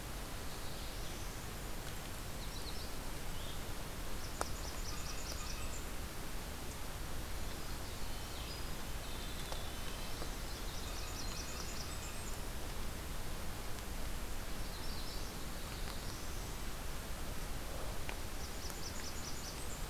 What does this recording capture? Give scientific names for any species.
Setophaga caerulescens, Regulus satrapa, Setophaga magnolia, Setophaga fusca, Troglodytes hiemalis, Sitta canadensis